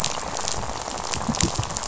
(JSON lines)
{"label": "biophony, rattle", "recorder": "SoundTrap 500"}